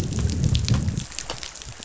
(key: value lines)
label: biophony, growl
recorder: SoundTrap 500